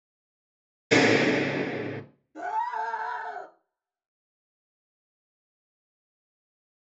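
At 0.91 seconds, gunfire is heard. Afterwards, at 2.34 seconds, someone screams.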